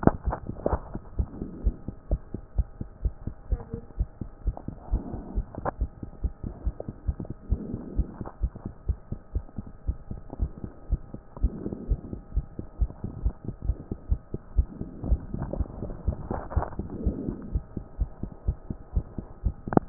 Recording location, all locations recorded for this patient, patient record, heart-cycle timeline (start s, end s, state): pulmonary valve (PV)
aortic valve (AV)+pulmonary valve (PV)+tricuspid valve (TV)+mitral valve (MV)
#Age: Child
#Sex: Male
#Height: 129.0 cm
#Weight: 26.8 kg
#Pregnancy status: False
#Murmur: Absent
#Murmur locations: nan
#Most audible location: nan
#Systolic murmur timing: nan
#Systolic murmur shape: nan
#Systolic murmur grading: nan
#Systolic murmur pitch: nan
#Systolic murmur quality: nan
#Diastolic murmur timing: nan
#Diastolic murmur shape: nan
#Diastolic murmur grading: nan
#Diastolic murmur pitch: nan
#Diastolic murmur quality: nan
#Outcome: Normal
#Campaign: 2014 screening campaign
0.00	1.11	unannotated
1.11	1.18	diastole
1.18	1.28	S1
1.28	1.38	systole
1.38	1.48	S2
1.48	1.64	diastole
1.64	1.74	S1
1.74	1.86	systole
1.86	1.94	S2
1.94	2.10	diastole
2.10	2.20	S1
2.20	2.32	systole
2.32	2.42	S2
2.42	2.56	diastole
2.56	2.68	S1
2.68	2.78	systole
2.78	2.88	S2
2.88	3.02	diastole
3.02	3.14	S1
3.14	3.26	systole
3.26	3.34	S2
3.34	3.50	diastole
3.50	3.62	S1
3.62	3.72	systole
3.72	3.82	S2
3.82	3.98	diastole
3.98	4.08	S1
4.08	4.20	systole
4.20	4.30	S2
4.30	4.46	diastole
4.46	4.56	S1
4.56	4.66	systole
4.66	4.76	S2
4.76	4.90	diastole
4.90	5.02	S1
5.02	5.12	systole
5.12	5.22	S2
5.22	5.36	diastole
5.36	5.46	S1
5.46	5.56	systole
5.56	5.66	S2
5.66	5.80	diastole
5.80	5.90	S1
5.90	6.00	systole
6.00	6.10	S2
6.10	6.22	diastole
6.22	6.32	S1
6.32	6.44	systole
6.44	6.52	S2
6.52	6.64	diastole
6.64	6.74	S1
6.74	6.86	systole
6.86	6.94	S2
6.94	7.06	diastole
7.06	7.16	S1
7.16	7.26	systole
7.26	7.34	S2
7.34	7.50	diastole
7.50	7.62	S1
7.62	7.70	systole
7.70	7.80	S2
7.80	7.96	diastole
7.96	8.08	S1
8.08	8.18	systole
8.18	8.26	S2
8.26	8.42	diastole
8.42	8.52	S1
8.52	8.64	systole
8.64	8.72	S2
8.72	8.88	diastole
8.88	8.98	S1
8.98	9.10	systole
9.10	9.20	S2
9.20	9.34	diastole
9.34	9.44	S1
9.44	9.58	systole
9.58	9.66	S2
9.66	9.86	diastole
9.86	9.98	S1
9.98	10.10	systole
10.10	10.20	S2
10.20	10.40	diastole
10.40	10.52	S1
10.52	10.62	systole
10.62	10.72	S2
10.72	10.90	diastole
10.90	11.00	S1
11.00	11.12	systole
11.12	11.22	S2
11.22	11.42	diastole
11.42	11.52	S1
11.52	11.64	systole
11.64	11.74	S2
11.74	11.88	diastole
11.88	12.00	S1
12.00	12.10	systole
12.10	12.20	S2
12.20	12.34	diastole
12.34	12.46	S1
12.46	12.56	systole
12.56	12.66	S2
12.66	12.80	diastole
12.80	12.90	S1
12.90	13.02	systole
13.02	13.12	S2
13.12	13.24	diastole
13.24	13.34	S1
13.34	13.44	systole
13.44	13.54	S2
13.54	13.66	diastole
13.66	13.76	S1
13.76	13.88	systole
13.88	13.96	S2
13.96	14.10	diastole
14.10	14.20	S1
14.20	14.32	systole
14.32	14.40	S2
14.40	14.56	diastole
14.56	14.68	S1
14.68	14.80	systole
14.80	14.88	S2
14.88	15.06	diastole
15.06	15.20	S1
15.20	15.32	systole
15.32	15.44	S2
15.44	15.56	diastole
15.56	15.68	S1
15.68	15.82	systole
15.82	15.92	S2
15.92	16.06	diastole
16.06	16.18	S1
16.18	16.30	systole
16.30	16.40	S2
16.40	16.56	diastole
16.56	16.66	S1
16.66	16.78	systole
16.78	16.88	S2
16.88	17.02	diastole
17.02	17.16	S1
17.16	17.24	systole
17.24	17.34	S2
17.34	17.52	diastole
17.52	17.64	S1
17.64	17.76	systole
17.76	17.84	S2
17.84	17.98	diastole
17.98	18.10	S1
18.10	18.22	systole
18.22	18.30	S2
18.30	18.46	diastole
18.46	18.56	S1
18.56	18.68	systole
18.68	18.78	S2
18.78	18.94	diastole
18.94	19.06	S1
19.06	19.16	systole
19.16	19.24	S2
19.24	19.44	diastole
19.44	19.89	unannotated